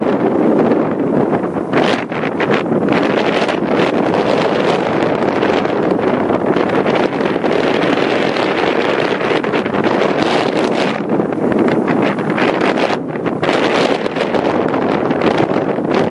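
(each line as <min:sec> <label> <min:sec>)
0:00.0 Strong wind blows forcefully near a window, creating a rumbling noise. 0:16.1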